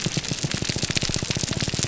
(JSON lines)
{"label": "biophony, grouper groan", "recorder": "SoundTrap 300"}